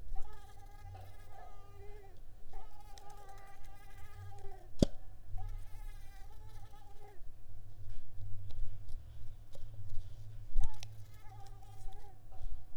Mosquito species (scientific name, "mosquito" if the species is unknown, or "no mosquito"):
Mansonia africanus